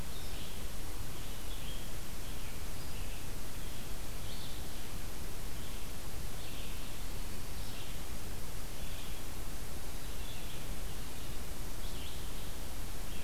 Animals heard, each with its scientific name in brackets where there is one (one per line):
Red-eyed Vireo (Vireo olivaceus)